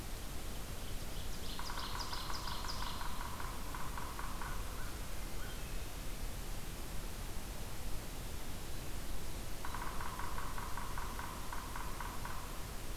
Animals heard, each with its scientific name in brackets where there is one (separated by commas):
American Crow (Corvus brachyrhynchos), Ovenbird (Seiurus aurocapilla), Yellow-bellied Sapsucker (Sphyrapicus varius), Wood Thrush (Hylocichla mustelina)